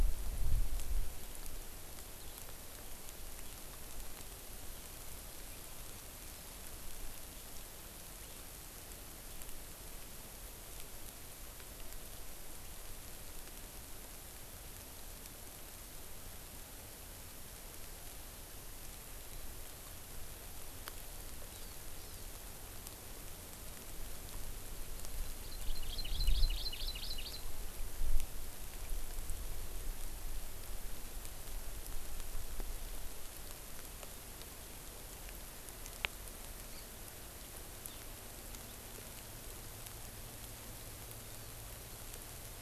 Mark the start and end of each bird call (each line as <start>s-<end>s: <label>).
21.5s-21.7s: Hawaii Amakihi (Chlorodrepanis virens)
22.0s-22.3s: Hawaii Amakihi (Chlorodrepanis virens)
25.4s-27.5s: Hawaii Amakihi (Chlorodrepanis virens)